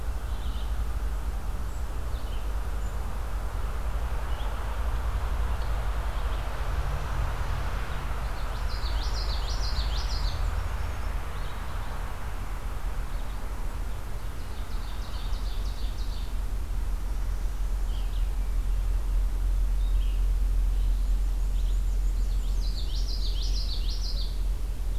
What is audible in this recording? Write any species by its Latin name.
Vireo olivaceus, Geothlypis trichas, Mniotilta varia, Seiurus aurocapilla